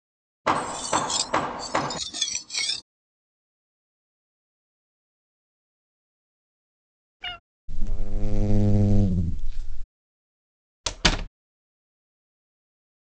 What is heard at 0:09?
buzz